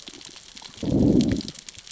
{"label": "biophony, growl", "recorder": "SoundTrap 600 or HydroMoth"}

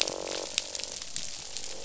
{"label": "biophony, croak", "recorder": "SoundTrap 500"}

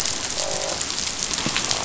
{"label": "biophony, croak", "recorder": "SoundTrap 500"}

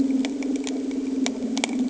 {"label": "anthrophony, boat engine", "recorder": "HydroMoth"}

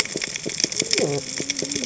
{"label": "biophony, cascading saw", "recorder": "HydroMoth"}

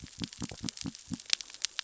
{"label": "biophony", "recorder": "SoundTrap 600 or HydroMoth"}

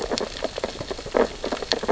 {"label": "biophony, sea urchins (Echinidae)", "recorder": "SoundTrap 600 or HydroMoth"}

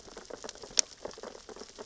{"label": "biophony, sea urchins (Echinidae)", "recorder": "SoundTrap 600 or HydroMoth"}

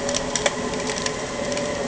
{"label": "anthrophony, boat engine", "recorder": "HydroMoth"}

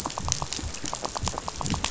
{"label": "biophony, rattle", "recorder": "SoundTrap 500"}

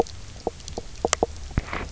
{"label": "biophony, knock croak", "recorder": "SoundTrap 300"}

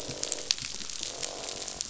{"label": "biophony, croak", "recorder": "SoundTrap 500"}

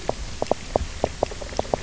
{"label": "biophony, knock croak", "recorder": "SoundTrap 300"}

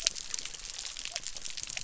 {"label": "biophony", "recorder": "SoundTrap 300"}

